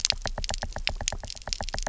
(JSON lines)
{"label": "biophony, knock", "recorder": "SoundTrap 300"}